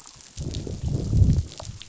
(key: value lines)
label: biophony, growl
recorder: SoundTrap 500